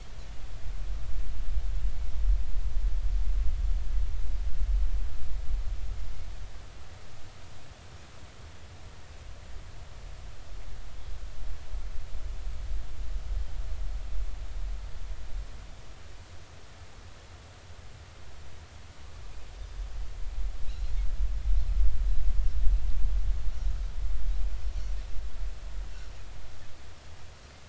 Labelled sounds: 20.7	20.9	Pacific white-sided dolphin, 3.8 to 4.3 kHz

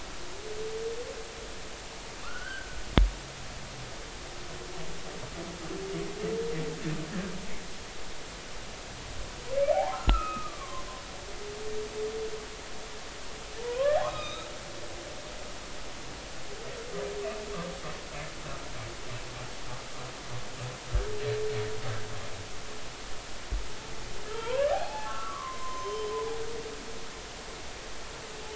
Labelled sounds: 2.2	2.8	humpback whale, 1.1 to 1.6 kHz
9.6	10.9	humpback whale, 0.80 to 2.6 kHz
13.6	14.5	humpback whale, 0.86 to 3.9 kHz
24.3	26.1	humpback whale, 0.80 to 6.3 kHz

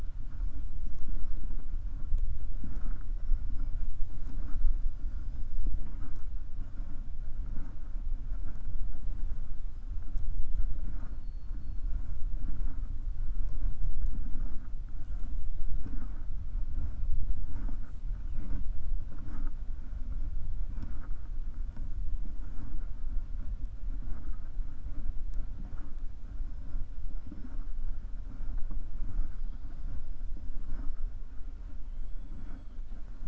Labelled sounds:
10.8	11.8	killer whale, 4.0 to 5.1 kHz

